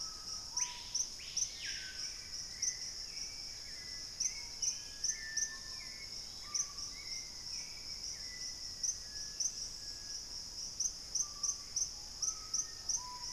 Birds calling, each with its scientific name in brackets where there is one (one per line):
Screaming Piha (Lipaugus vociferans)
Black-faced Antthrush (Formicarius analis)
Gray Antbird (Cercomacra cinerascens)
unidentified bird
Hauxwell's Thrush (Turdus hauxwelli)